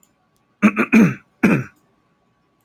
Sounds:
Throat clearing